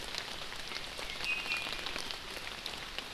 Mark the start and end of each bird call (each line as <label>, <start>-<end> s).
Iiwi (Drepanis coccinea), 1.2-1.8 s